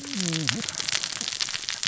{"label": "biophony, cascading saw", "recorder": "SoundTrap 600 or HydroMoth"}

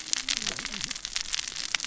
{"label": "biophony, cascading saw", "recorder": "SoundTrap 600 or HydroMoth"}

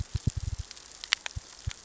{"label": "biophony, knock", "recorder": "SoundTrap 600 or HydroMoth"}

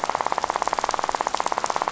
{"label": "biophony, rattle", "recorder": "SoundTrap 500"}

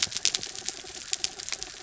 {"label": "anthrophony, mechanical", "recorder": "SoundTrap 300"}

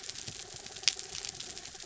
{"label": "anthrophony, mechanical", "recorder": "SoundTrap 300"}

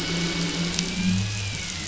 {"label": "anthrophony, boat engine", "recorder": "SoundTrap 500"}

